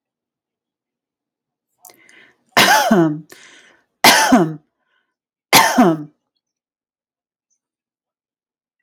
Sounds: Cough